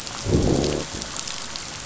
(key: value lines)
label: biophony, growl
recorder: SoundTrap 500